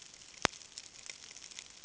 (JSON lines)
{"label": "ambient", "recorder": "HydroMoth"}